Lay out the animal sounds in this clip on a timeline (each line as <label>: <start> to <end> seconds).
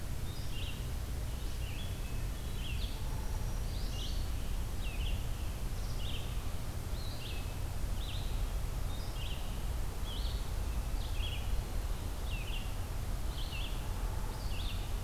Red-eyed Vireo (Vireo olivaceus): 0.0 to 15.0 seconds
Hermit Thrush (Catharus guttatus): 1.7 to 2.7 seconds
Hairy Woodpecker (Dryobates villosus): 2.9 to 3.6 seconds
Black-throated Green Warbler (Setophaga virens): 3.0 to 4.2 seconds
Hairy Woodpecker (Dryobates villosus): 13.8 to 14.6 seconds